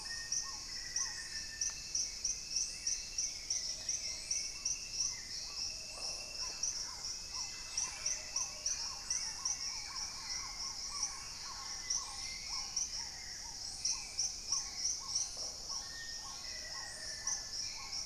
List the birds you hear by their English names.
Black-faced Antthrush, Black-tailed Trogon, Hauxwell's Thrush, Paradise Tanager, Dusky-capped Greenlet, Plumbeous Pigeon, Red-necked Woodpecker, Thrush-like Wren